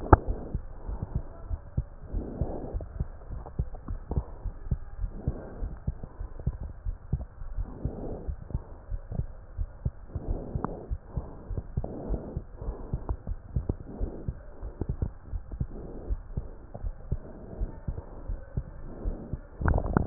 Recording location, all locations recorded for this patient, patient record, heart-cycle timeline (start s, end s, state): aortic valve (AV)
aortic valve (AV)+pulmonary valve (PV)+tricuspid valve (TV)+mitral valve (MV)
#Age: Child
#Sex: Female
#Height: 133.0 cm
#Weight: 39.4 kg
#Pregnancy status: False
#Murmur: Absent
#Murmur locations: nan
#Most audible location: nan
#Systolic murmur timing: nan
#Systolic murmur shape: nan
#Systolic murmur grading: nan
#Systolic murmur pitch: nan
#Systolic murmur quality: nan
#Diastolic murmur timing: nan
#Diastolic murmur shape: nan
#Diastolic murmur grading: nan
#Diastolic murmur pitch: nan
#Diastolic murmur quality: nan
#Outcome: Normal
#Campaign: 2015 screening campaign
0.00	3.08	unannotated
3.08	3.30	diastole
3.30	3.44	S1
3.44	3.56	systole
3.56	3.68	S2
3.68	3.88	diastole
3.88	4.00	S1
4.00	4.10	systole
4.10	4.24	S2
4.24	4.44	diastole
4.44	4.54	S1
4.54	4.68	systole
4.68	4.80	S2
4.80	5.02	diastole
5.02	5.14	S1
5.14	5.24	systole
5.24	5.36	S2
5.36	5.60	diastole
5.60	5.74	S1
5.74	5.86	systole
5.86	5.96	S2
5.96	6.20	diastole
6.20	6.30	S1
6.30	6.44	systole
6.44	6.56	S2
6.56	6.84	diastole
6.84	6.96	S1
6.96	7.10	systole
7.10	7.26	S2
7.26	7.50	diastole
7.50	7.66	S1
7.66	7.84	systole
7.84	7.98	S2
7.98	8.26	diastole
8.26	8.38	S1
8.38	8.52	systole
8.52	8.64	S2
8.64	8.90	diastole
8.90	9.02	S1
9.02	9.12	systole
9.12	9.28	S2
9.28	9.58	diastole
9.58	9.70	S1
9.70	9.84	systole
9.84	9.96	S2
9.96	10.26	diastole
10.26	10.42	S1
10.42	10.54	systole
10.54	10.68	S2
10.68	10.88	diastole
10.88	11.00	S1
11.00	11.13	systole
11.13	11.26	S2
11.26	11.50	diastole
11.50	11.64	S1
11.64	11.76	systole
11.76	11.86	S2
11.86	12.06	diastole
12.06	12.22	S1
12.22	12.36	systole
12.36	12.46	S2
12.46	12.66	diastole
12.66	12.78	S1
12.78	12.92	systole
12.92	13.02	S2
13.02	13.28	diastole
13.28	13.40	S1
13.40	13.52	systole
13.52	13.66	S2
13.66	13.96	diastole
13.96	14.12	S1
14.12	14.26	systole
14.26	14.38	S2
14.38	14.64	diastole
14.64	14.74	S1
14.74	14.88	systole
14.88	15.00	S2
15.00	15.30	diastole
15.30	15.44	S1
15.44	15.58	systole
15.58	15.72	S2
15.72	16.02	diastole
16.02	16.20	S1
16.20	16.34	systole
16.34	16.50	S2
16.50	16.80	diastole
16.80	16.94	S1
16.94	17.08	systole
17.08	17.22	S2
17.22	17.52	diastole
17.52	17.70	S1
17.70	17.84	systole
17.84	17.98	S2
17.98	18.28	diastole
18.28	18.42	S1
18.42	18.58	systole
18.58	18.72	S2
18.72	18.92	diastole
18.92	20.06	unannotated